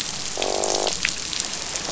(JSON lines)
{"label": "biophony, croak", "recorder": "SoundTrap 500"}